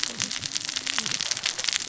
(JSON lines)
{"label": "biophony, cascading saw", "recorder": "SoundTrap 600 or HydroMoth"}